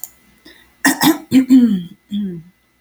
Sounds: Throat clearing